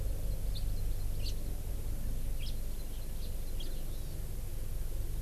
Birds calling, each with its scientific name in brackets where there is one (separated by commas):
Hawaii Amakihi (Chlorodrepanis virens), House Finch (Haemorhous mexicanus)